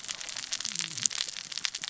{"label": "biophony, cascading saw", "recorder": "SoundTrap 600 or HydroMoth"}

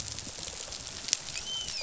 {"label": "biophony, dolphin", "recorder": "SoundTrap 500"}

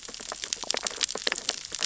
{"label": "biophony, sea urchins (Echinidae)", "recorder": "SoundTrap 600 or HydroMoth"}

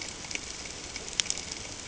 {"label": "ambient", "recorder": "HydroMoth"}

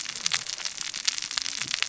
{"label": "biophony, cascading saw", "recorder": "SoundTrap 600 or HydroMoth"}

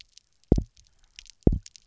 {"label": "biophony, double pulse", "recorder": "SoundTrap 300"}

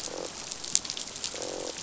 {"label": "biophony, croak", "recorder": "SoundTrap 500"}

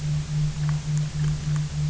{"label": "anthrophony, boat engine", "recorder": "SoundTrap 300"}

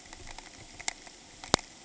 {"label": "ambient", "recorder": "HydroMoth"}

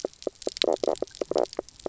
{"label": "biophony, knock croak", "recorder": "SoundTrap 300"}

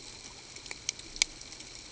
{"label": "ambient", "recorder": "HydroMoth"}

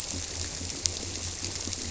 {"label": "biophony", "recorder": "SoundTrap 300"}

